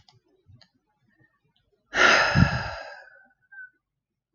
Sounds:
Sigh